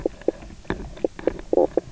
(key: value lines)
label: biophony, knock croak
recorder: SoundTrap 300